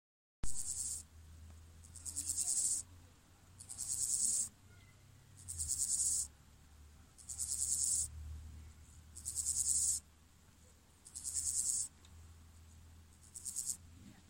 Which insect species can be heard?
Chorthippus dorsatus